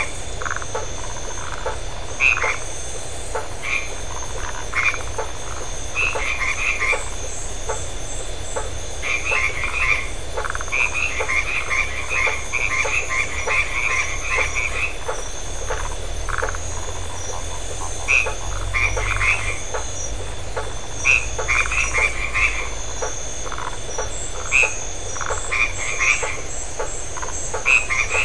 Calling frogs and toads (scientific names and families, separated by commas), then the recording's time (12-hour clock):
Boana faber (Hylidae), Phyllomedusa distincta (Hylidae), Boana albomarginata (Hylidae)
8:15pm